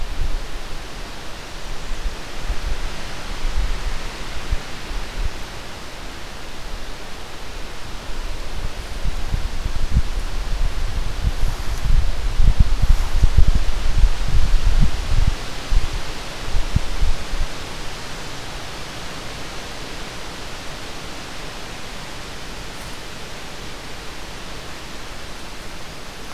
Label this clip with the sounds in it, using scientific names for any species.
forest ambience